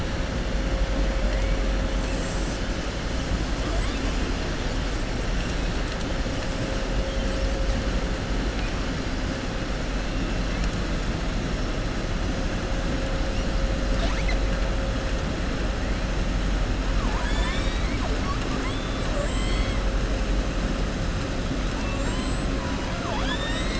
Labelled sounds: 18.6	19.7	killer whale, southern resident, 7.0 to 8.0 kHz
22.6	23.4	killer whale, southern resident, 0.67 to 7.2 kHz

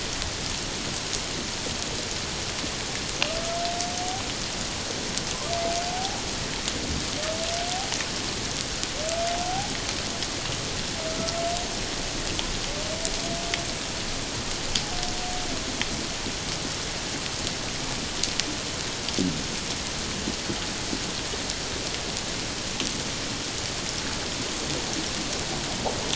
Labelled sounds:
5.9	6.2	humpback whale, 0.78 to 0.88 kHz
9.4	9.7	humpback whale, 0.78 to 0.88 kHz

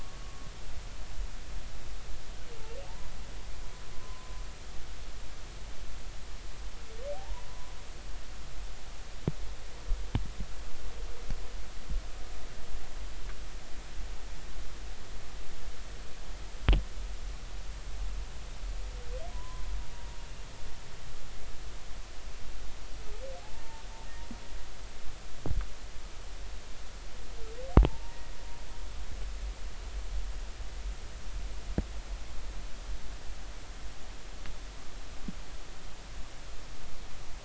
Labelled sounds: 2.9	3.1	humpback whale, 0.80 to 1.1 kHz
3.9	4.3	humpback whale, 0.96 to 1.1 kHz
7.1	7.5	humpback whale, 0.80 to 1.0 kHz
19.3	19.6	humpback whale, 0.93 to 1.1 kHz
23.4	23.8	humpback whale, 0.80 to 0.96 kHz
27.7	28.3	humpback whale, 0.80 to 2.0 kHz

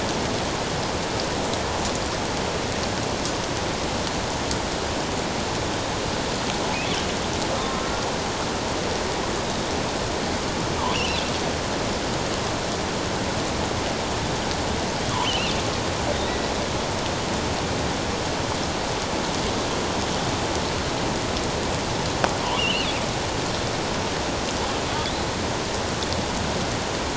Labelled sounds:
7.7	8.1	killer whale, offshore, 1.2 to 1.4 kHz
10.9	11.2	killer whale, offshore, 2.5 to 3.1 kHz
16.1	16.5	killer whale, offshore, 1.9 to 3.9 kHz
22.6	22.9	killer whale, offshore, 2.4 to 3.1 kHz
24.9	25.1	killer whale, offshore, 3.3 to 3.6 kHz

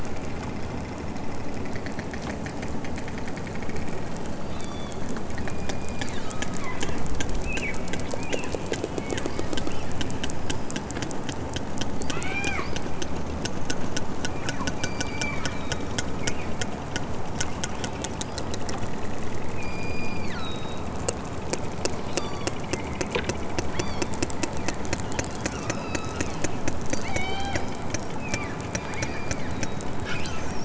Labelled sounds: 4.4	5.0	killer whale, southern Alaska resident, 1.3 to 6.1 kHz
5.4	6.5	killer whale, southern Alaska resident, 0.92 to 5.2 kHz
7.4	7.8	killer whale, southern Alaska resident, 1.4 to 3.4 kHz
8.3	8.6	killer whale, southern Alaska resident, 1.9 to 3.9 kHz
9.0	9.3	killer whale, southern Alaska resident, 1.4 to 3.6 kHz
12.0	12.7	killer whale, southern Alaska resident, 0.46 to 8.0 kHz
14.2	16.6	killer whale, southern Alaska resident, 0.97 to 5.1 kHz
19.5	20.9	killer whale, southern Alaska resident, 1.1 to 7.6 kHz
22.0	22.5	killer whale, southern Alaska resident, 2.7 to 8.0 kHz
23.7	24.2	killer whale, southern Alaska resident, 2.0 to 6.2 kHz
25.6	26.4	killer whale, southern Alaska resident, 0.78 to 5.5 kHz
27.0	27.7	killer whale, southern Alaska resident, 0.37 to 7.7 kHz
28.2	30.4	killer whale, southern Alaska resident, 0.92 to 8.0 kHz

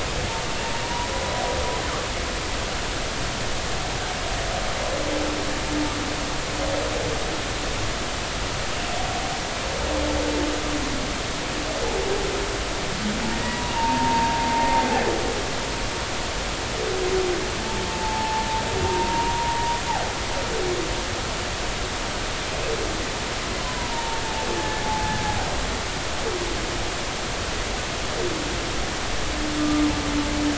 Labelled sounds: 0.8	1.1	humpback whale, 0.90 to 1.0 kHz
13.3	14.4	humpback whale, 0.86 to 2.0 kHz
17.9	18.4	humpback whale, 0.80 to 0.93 kHz
18.9	19.8	humpback whale, 0.90 to 0.99 kHz
23.7	23.9	humpback whale, 0.93 to 1.1 kHz
24.8	25.2	humpback whale, 0.80 to 0.99 kHz
29.6	29.9	humpback whale, 1.15 to 1.25 kHz

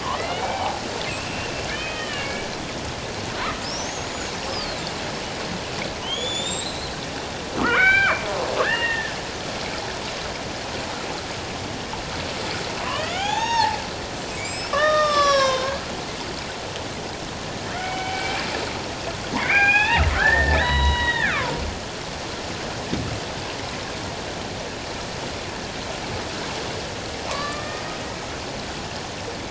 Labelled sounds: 0.0	0.8	killer whale, Bigg's (transient), 0.78 to 2.4 kHz
1.1	2.5	killer whale, Bigg's (transient), 1.1 to 7.9 kHz
3.6	4.8	killer whale, Bigg's (transient), 4.1 to 7.0 kHz
6.0	6.9	killer whale, Bigg's (transient), 2.8 to 7.8 kHz
7.6	8.2	killer whale, Bigg's (transient), 0.91 to 4.8 kHz
8.6	9.2	killer whale, Bigg's (transient), 1.5 to 2.9 kHz
12.8	13.8	killer whale, Bigg's (transient), 0.78 to 6.6 kHz
14.4	15.8	killer whale, Bigg's (transient), 0.88 to 8.0 kHz
17.7	18.4	killer whale, Bigg's (transient), 0.78 to 3.1 kHz
19.4	21.5	killer whale, Bigg's (transient), 0.78 to 5.2 kHz
27.3	27.8	killer whale, Bigg's (transient), 0.84 to 4.8 kHz

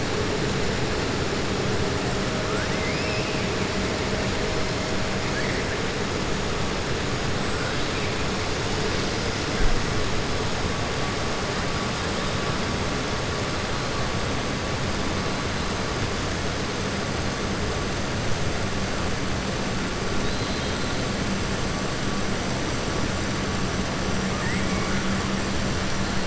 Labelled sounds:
2.4	3.4	killer whale, southern resident, 1.3 to 2.9 kHz
20.2	20.9	killer whale, southern resident, 3.0 to 4.4 kHz

